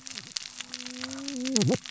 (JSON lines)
{"label": "biophony, cascading saw", "recorder": "SoundTrap 600 or HydroMoth"}